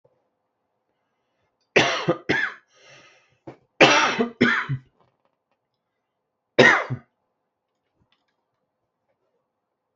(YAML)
expert_labels:
- quality: ok
  cough_type: dry
  dyspnea: false
  wheezing: false
  stridor: false
  choking: false
  congestion: false
  nothing: true
  diagnosis: COVID-19
  severity: mild